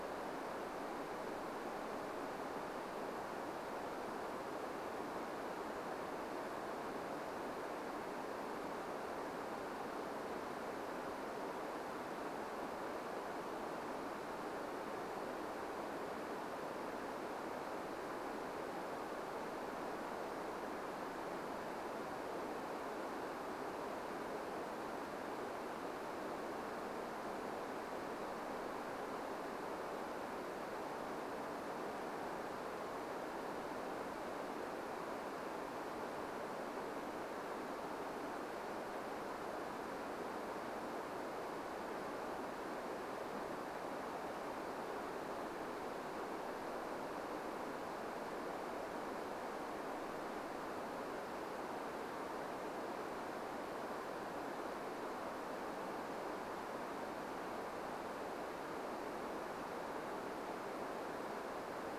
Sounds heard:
forest ambience